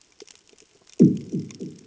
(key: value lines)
label: anthrophony, bomb
recorder: HydroMoth